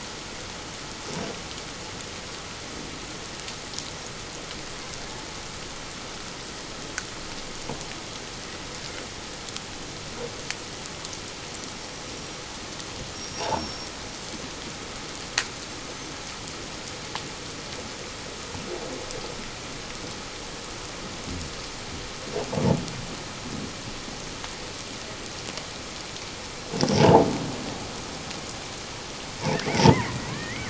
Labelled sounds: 13.1	13.9	killer whale, Bigg's (transient), 5.4 to 5.8 kHz
27.0	27.2	killer whale, Bigg's (transient), 0.78 to 1.0 kHz
29.9	30.6	killer whale, Bigg's (transient), 1.6 to 2.3 kHz

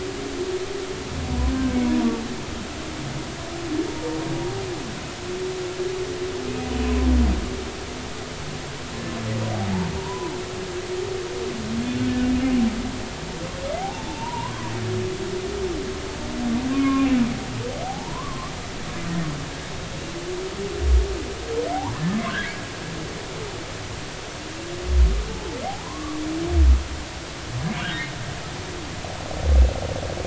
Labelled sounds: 1.5	2.1	humpback whale, 0.93 to 1.6 kHz
6.8	7.1	humpback whale, 0.96 to 1.1 kHz
10.0	10.3	humpback whale, 0.86 to 1.1 kHz
13.8	14.7	humpback whale, 0.80 to 1.2 kHz
16.7	18.5	humpback whale, 0.80 to 2.5 kHz
21.9	22.5	humpback whale, 1.4 to 1.9 kHz
25.3	26.2	humpback whale, 0.80 to 1.2 kHz

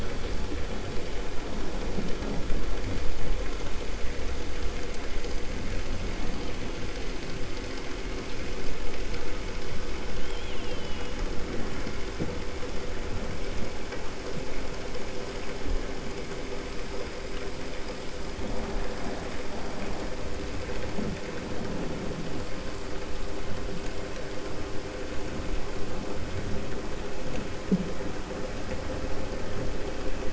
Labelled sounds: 10.2	11.1	killer whale, 2.4 to 3.9 kHz

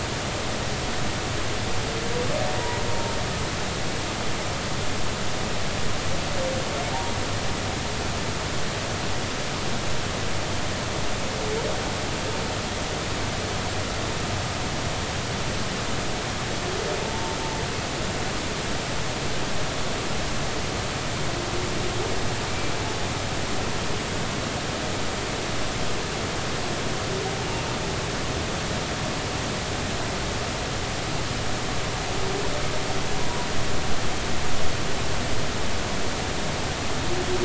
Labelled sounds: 6.9	7.2	humpback whale, 0.80 to 0.99 kHz
17.0	17.4	humpback whale, 0.86 to 1.0 kHz

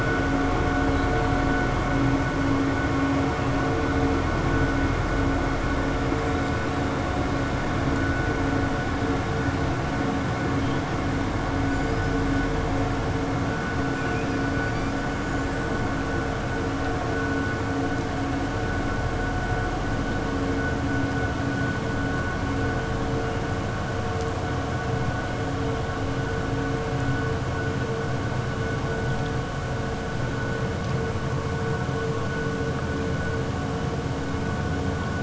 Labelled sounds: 13.9	14.3	killer whale, 1.7 to 3.4 kHz

